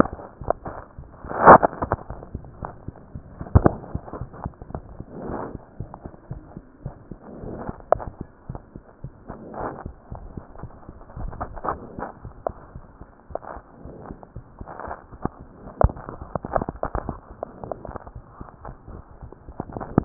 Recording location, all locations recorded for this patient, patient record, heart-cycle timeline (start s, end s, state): mitral valve (MV)
aortic valve (AV)+pulmonary valve (PV)+tricuspid valve (TV)+mitral valve (MV)
#Age: Child
#Sex: Male
#Height: 87.0 cm
#Weight: 11.2 kg
#Pregnancy status: False
#Murmur: Present
#Murmur locations: aortic valve (AV)+mitral valve (MV)+pulmonary valve (PV)+tricuspid valve (TV)
#Most audible location: pulmonary valve (PV)
#Systolic murmur timing: Early-systolic
#Systolic murmur shape: Plateau
#Systolic murmur grading: II/VI
#Systolic murmur pitch: Low
#Systolic murmur quality: Harsh
#Diastolic murmur timing: nan
#Diastolic murmur shape: nan
#Diastolic murmur grading: nan
#Diastolic murmur pitch: nan
#Diastolic murmur quality: nan
#Outcome: Abnormal
#Campaign: 2015 screening campaign
0.00	5.78	unannotated
5.78	5.88	S1
5.88	6.04	systole
6.04	6.12	S2
6.12	6.30	diastole
6.30	6.38	S1
6.38	6.55	systole
6.55	6.64	S2
6.64	6.84	diastole
6.84	6.94	S1
6.94	7.09	systole
7.09	7.16	S2
7.16	7.42	diastole
7.42	7.53	S1
7.53	7.67	systole
7.67	7.75	S2
7.75	7.94	diastole
7.94	8.00	S1
8.00	8.19	systole
8.19	8.24	S2
8.24	8.48	diastole
8.48	8.60	S1
8.60	8.73	systole
8.73	8.82	S2
8.82	9.02	diastole
9.02	9.12	S1
9.12	9.28	systole
9.28	9.36	S2
9.36	9.59	diastole
9.59	9.71	S1
9.71	9.84	systole
9.84	9.91	S2
9.91	10.09	diastole
10.09	10.18	S1
10.18	10.35	systole
10.35	10.44	S2
10.44	10.61	diastole
10.61	10.69	S1
10.69	10.87	systole
10.87	10.92	S2
10.92	11.15	diastole
11.15	11.23	S1
11.23	20.05	unannotated